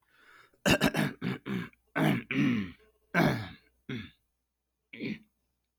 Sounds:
Throat clearing